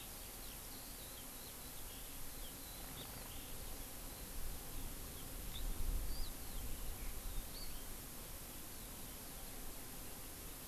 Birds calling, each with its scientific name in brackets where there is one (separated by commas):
Eurasian Skylark (Alauda arvensis), House Finch (Haemorhous mexicanus)